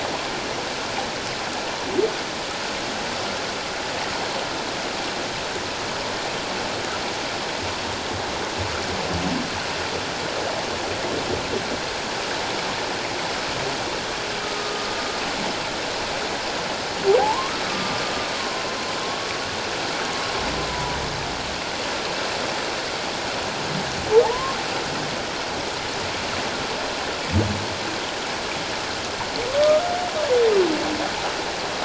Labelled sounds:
14.4	14.9	humpback whale, 1.2 to 1.3 kHz
17.2	18.0	humpback whale, 0.78 to 1.4 kHz
19.0	19.3	humpback whale, 1.0 to 1.2 kHz
20.7	21.0	humpback whale, 0.94 to 1.0 kHz
24.2	24.6	humpback whale, 0.78 to 1.1 kHz
29.6	29.8	humpback whale, 1.2 to 1.3 kHz

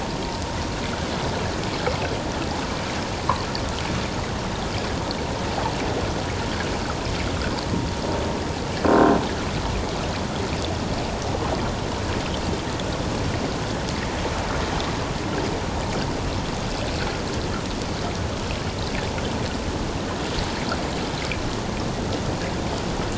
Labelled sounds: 8.8	9.2	vessel noise, 1.0 to 1.1 kHz

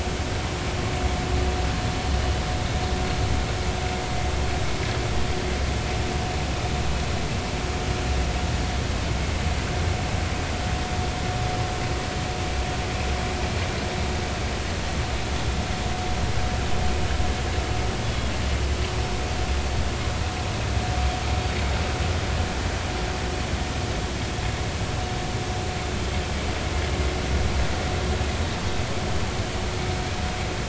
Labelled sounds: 18.0	18.3	Pacific white-sided dolphin, 3.2 to 3.5 kHz

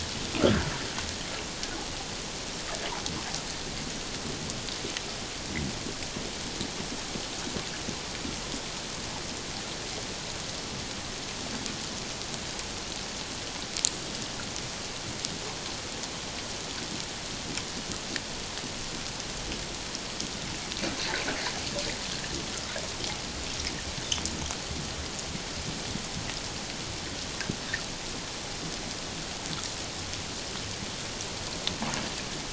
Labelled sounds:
0.3	0.7	humpback whale, 1.3 to 1.8 kHz

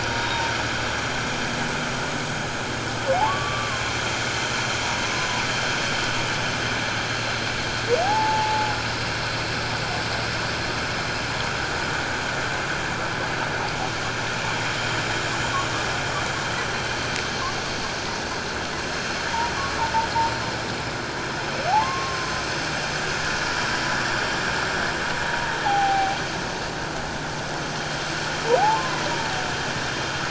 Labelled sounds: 0.2	0.5	humpback whale, 3.7 to 3.8 kHz
3.1	3.8	humpback whale, 0.78 to 1.2 kHz
8.0	8.7	humpback whale, 0.78 to 1.0 kHz
19.3	19.5	humpback whale, 0.84 to 1.0 kHz
21.8	22.3	humpback whale, 1.0 to 1.1 kHz
25.3	26.2	humpback whale, 0.78 to 1.0 kHz
28.7	29.0	humpback whale, 0.94 to 1.1 kHz

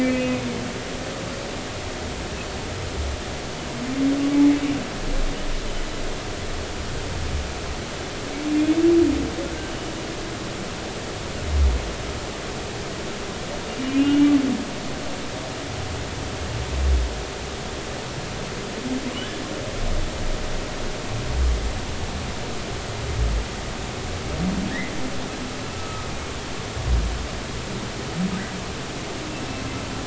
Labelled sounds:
13.8	14.3	humpback whale, 2.7 to 3.2 kHz
25.7	26.1	humpback whale, 1.2 to 1.3 kHz

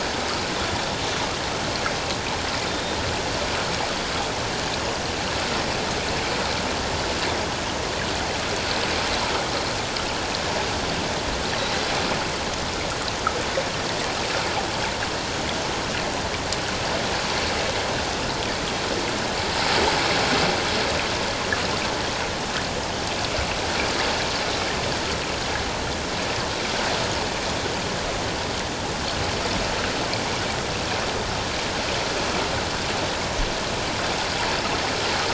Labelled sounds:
2.7	3.0	killer whale, 3.6 to 3.7 kHz

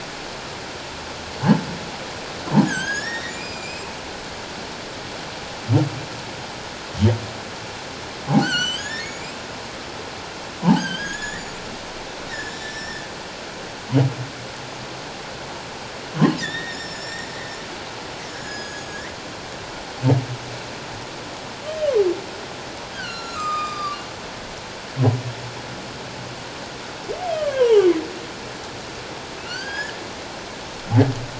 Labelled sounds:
2.6	4.0	humpback whale, 1.4 to 8.0 kHz
8.4	9.4	humpback whale, 1.4 to 7.8 kHz
10.7	11.6	humpback whale, 1.5 to 7.1 kHz
12.3	13.0	humpback whale, 1.7 to 5.8 kHz
16.4	17.3	humpback whale, 1.7 to 7.3 kHz
18.3	19.2	humpback whale, 1.6 to 7.1 kHz
22.9	24.0	humpback whale, 1.1 to 7.5 kHz
27.2	27.9	humpback whale, 0.78 to 3.4 kHz
29.4	30.0	humpback whale, 1.3 to 5.2 kHz

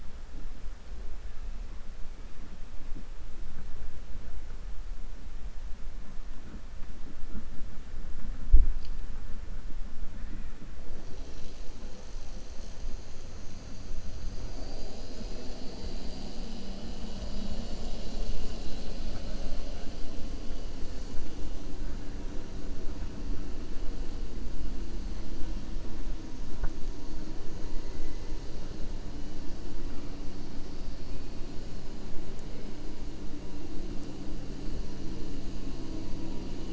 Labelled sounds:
14.4	15.2	killer whale, 4.1 to 5.9 kHz

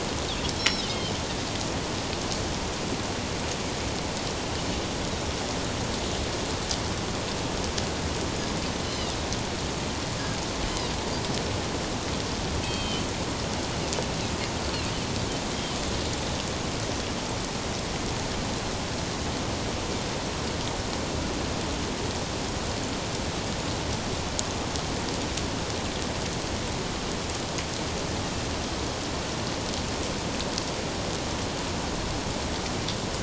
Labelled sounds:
8.8	9.1	Pacific white-sided dolphin, 2.8 to 3.1 kHz
12.6	13.0	Pacific white-sided dolphin, 2.4 to 4.6 kHz

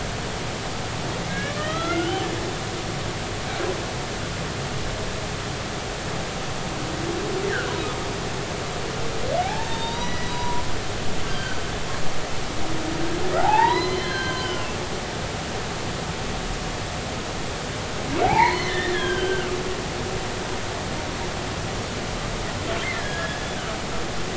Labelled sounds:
1.2	2.3	humpback whale, 1.2 to 3.5 kHz
7.4	7.7	humpback whale, 1.3 to 2.1 kHz
9.4	10.6	humpback whale, 0.80 to 5.9 kHz
11.3	11.6	humpback whale, 1.4 to 1.6 kHz
13.4	14.8	humpback whale, 0.80 to 4.3 kHz
18.2	19.5	humpback whale, 0.80 to 4.4 kHz
22.9	23.4	humpback whale, 1.6 to 1.9 kHz

